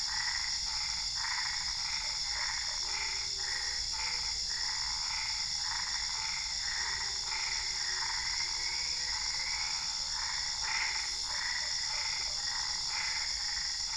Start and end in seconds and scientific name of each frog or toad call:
0.0	13.9	Boana albopunctata
2.0	3.1	Boana lundii
11.2	12.4	Boana lundii